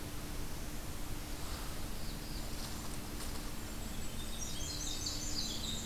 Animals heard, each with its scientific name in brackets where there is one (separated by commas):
Golden-crowned Kinglet (Regulus satrapa), Black-throated Blue Warbler (Setophaga caerulescens), Winter Wren (Troglodytes hiemalis), Blackburnian Warbler (Setophaga fusca)